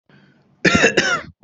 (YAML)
expert_labels:
- quality: good
  cough_type: dry
  dyspnea: false
  wheezing: false
  stridor: false
  choking: false
  congestion: false
  nothing: true
  diagnosis: healthy cough
  severity: pseudocough/healthy cough
age: 36
gender: male
respiratory_condition: false
fever_muscle_pain: false
status: symptomatic